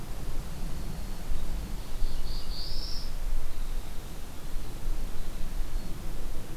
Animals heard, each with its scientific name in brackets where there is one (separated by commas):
Black-throated Blue Warbler (Setophaga caerulescens), Winter Wren (Troglodytes hiemalis)